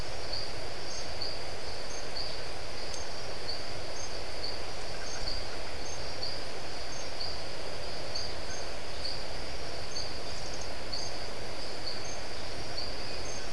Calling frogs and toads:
marbled tropical bullfrog (Adenomera marmorata)
5:30pm

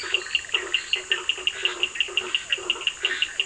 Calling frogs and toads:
Bischoff's tree frog (Boana bischoffi), blacksmith tree frog (Boana faber), Cochran's lime tree frog (Sphaenorhynchus surdus), Physalaemus cuvieri, Scinax perereca
~9pm

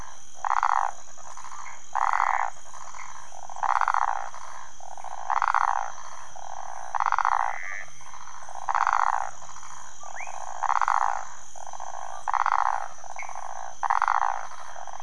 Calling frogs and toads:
waxy monkey tree frog (Phyllomedusa sauvagii), rufous frog (Leptodactylus fuscus), Pithecopus azureus
4am

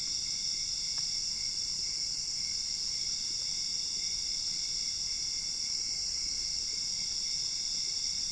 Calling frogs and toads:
none
~2am

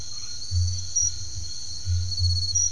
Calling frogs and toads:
Crubixa snouted tree frog (Scinax alter)
10pm

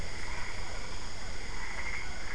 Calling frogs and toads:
Boana albopunctata, Physalaemus cuvieri
~7pm

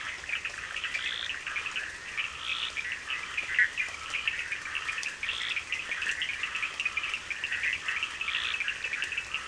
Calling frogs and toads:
Bischoff's tree frog (Boana bischoffi), Scinax perereca, Cochran's lime tree frog (Sphaenorhynchus surdus)
~1am

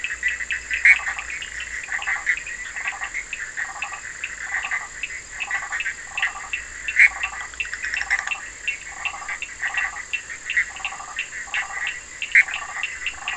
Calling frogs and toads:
Bischoff's tree frog (Boana bischoffi), Burmeister's tree frog (Boana prasina), Cochran's lime tree frog (Sphaenorhynchus surdus)
~midnight

